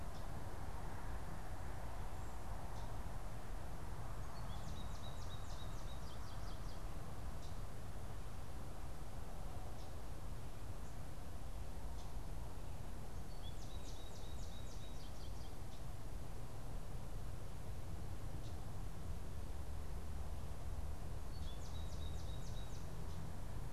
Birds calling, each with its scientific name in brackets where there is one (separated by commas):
Common Yellowthroat (Geothlypis trichas), American Goldfinch (Spinus tristis)